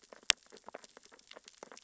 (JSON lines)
{"label": "biophony, sea urchins (Echinidae)", "recorder": "SoundTrap 600 or HydroMoth"}